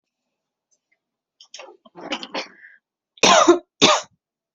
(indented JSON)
{
  "expert_labels": [
    {
      "quality": "good",
      "cough_type": "dry",
      "dyspnea": false,
      "wheezing": false,
      "stridor": false,
      "choking": false,
      "congestion": false,
      "nothing": true,
      "diagnosis": "healthy cough",
      "severity": "pseudocough/healthy cough"
    }
  ],
  "age": 21,
  "gender": "female",
  "respiratory_condition": false,
  "fever_muscle_pain": false,
  "status": "symptomatic"
}